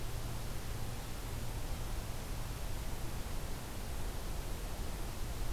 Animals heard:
forest ambience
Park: Acadia National Park